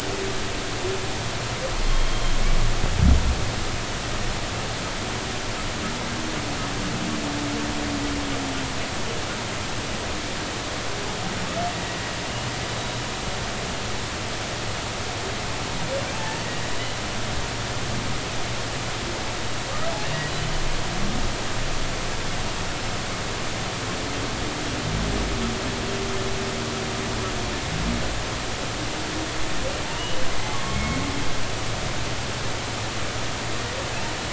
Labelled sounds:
1.9	2.2	humpback whale, 3.1 to 3.3 kHz
16.1	16.4	humpback whale, 0.83 to 0.93 kHz
29.8	31.0	humpback whale, 0.83 to 3.0 kHz

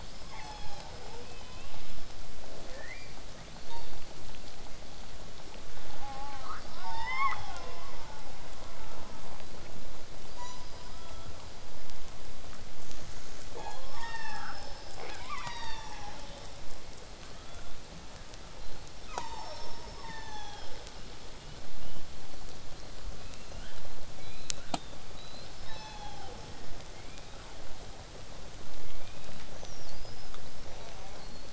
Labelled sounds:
0.0	1.2	killer whale, southern resident, call S36, 0.31 to 8.0 kHz
2.4	3.1	killer whale, southern resident, L pod, call S22, 0.31 to 4.9 kHz
6.0	6.4	killer whale, southern resident, J pod, call S04, 0.45 to 2.9 kHz
6.4	8.3	killer whale, southern resident, 0.36 to 7.4 kHz
10.9	11.4	killer whale, southern resident, 0.99 to 3.5 kHz
13.6	13.8	killer whale, southern resident, 0.31 to 6.8 kHz
15.4	16.3	killer whale, southern resident, 0.63 to 7.6 kHz
17.2	17.7	killer whale, southern resident, 1.1 to 3.6 kHz
18.6	18.9	killer whale, southern resident, whistle, 3.9 to 4.4 kHz
20.0	20.8	killer whale, southern resident, 0.31 to 8.0 kHz
20.9	23.5	killer whale, southern resident, whistle, 2.7 to 4.4 kHz
23.2	23.8	killer whale, southern resident, L pod, call S19, 0.94 to 4.9 kHz
24.2	24.8	killer whale, southern resident, L pod, call S19, 0.90 to 4.4 kHz
24.7	25.5	killer whale, southern resident, whistle, 3.4 to 4.3 kHz
25.7	26.4	killer whale, southern resident, 0.36 to 6.2 kHz
26.9	27.4	killer whale, southern resident, 1.9 to 3.9 kHz
28.9	29.4	killer whale, southern resident, 2.2 to 4.0 kHz
29.6	31.5	killer whale, southern resident, whistle, 3.7 to 8.0 kHz
30.7	31.2	killer whale, southern resident, J pod, call S04, 0.22 to 2.5 kHz

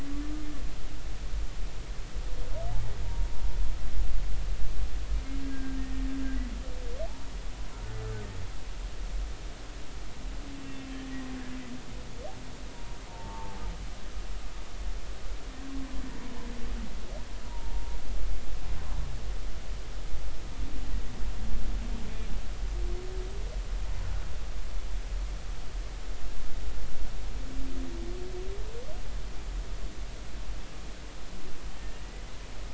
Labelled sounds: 5.4	5.8	humpback whale, 1.5 to 1.7 kHz
10.6	11.0	humpback whale, 2.6 to 2.8 kHz
12.7	13.6	humpback whale, 0.80 to 1.2 kHz
17.5	17.9	humpback whale, 0.83 to 1.0 kHz

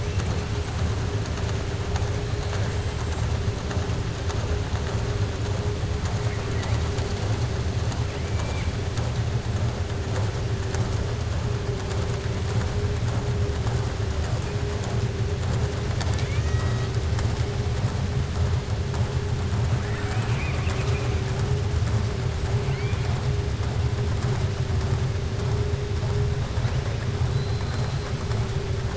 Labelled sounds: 2.6	3.3	killer whale, southern resident, 6.5 to 8.0 kHz
8.2	8.7	killer whale, southern resident, 1.7 to 3.1 kHz
19.8	21.1	killer whale, southern resident, 0.76 to 7.6 kHz
27.3	28.0	killer whale, southern resident, 3.8 to 4.2 kHz

